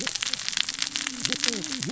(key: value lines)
label: biophony, cascading saw
recorder: SoundTrap 600 or HydroMoth